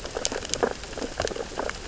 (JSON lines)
{"label": "biophony, sea urchins (Echinidae)", "recorder": "SoundTrap 600 or HydroMoth"}